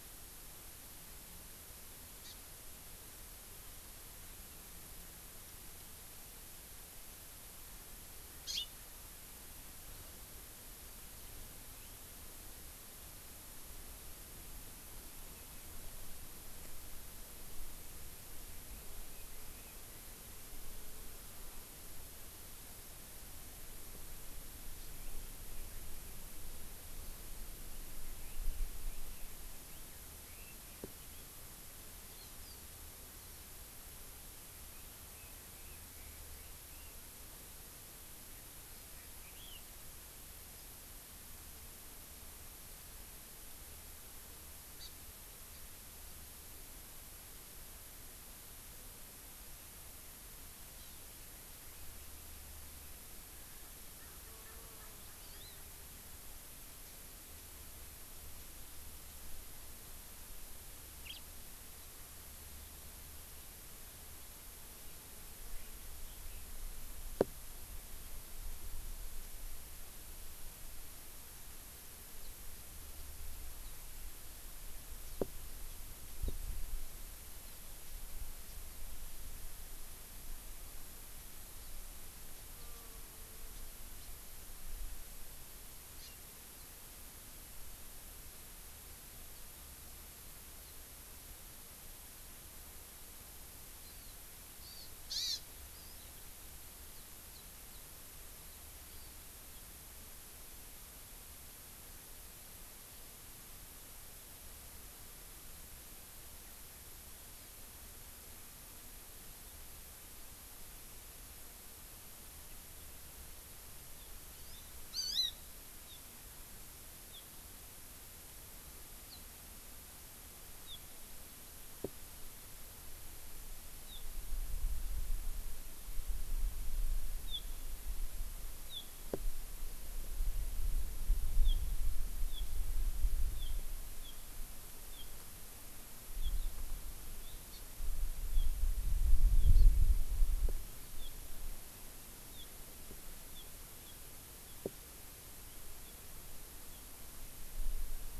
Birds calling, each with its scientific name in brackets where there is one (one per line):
Erckel's Francolin (Pternistis erckelii)
House Finch (Haemorhous mexicanus)
Warbling White-eye (Zosterops japonicus)
Eurasian Skylark (Alauda arvensis)
Hawaii Amakihi (Chlorodrepanis virens)
Chinese Hwamei (Garrulax canorus)